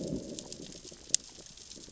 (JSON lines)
{"label": "biophony, growl", "recorder": "SoundTrap 600 or HydroMoth"}